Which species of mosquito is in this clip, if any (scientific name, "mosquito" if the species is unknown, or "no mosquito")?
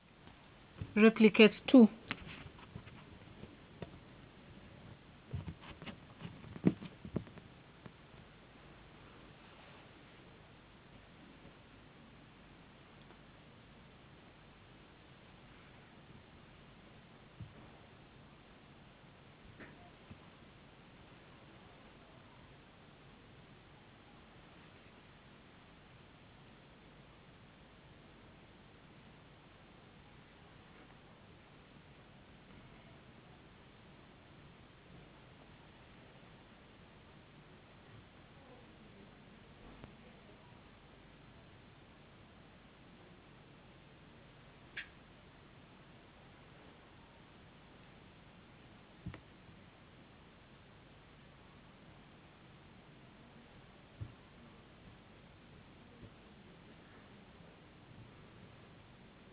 no mosquito